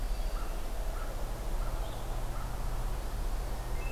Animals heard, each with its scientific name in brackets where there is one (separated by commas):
Blue-headed Vireo (Vireo solitarius), American Crow (Corvus brachyrhynchos)